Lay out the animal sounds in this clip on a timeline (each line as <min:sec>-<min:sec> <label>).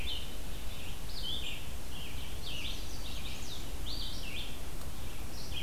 0:00.0-0:05.6 Red-eyed Vireo (Vireo olivaceus)
0:02.4-0:03.8 Chestnut-sided Warbler (Setophaga pensylvanica)